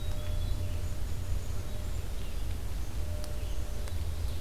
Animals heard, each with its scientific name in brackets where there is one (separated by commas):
Black-capped Chickadee (Poecile atricapillus), Red-eyed Vireo (Vireo olivaceus)